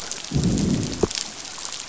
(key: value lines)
label: biophony, growl
recorder: SoundTrap 500